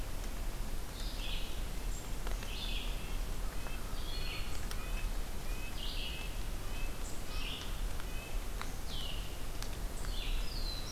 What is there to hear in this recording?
Red-eyed Vireo, Red-breasted Nuthatch, Black-throated Blue Warbler